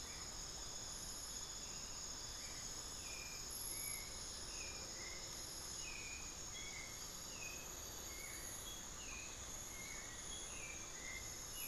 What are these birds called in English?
Hauxwell's Thrush, Ringed Antpipit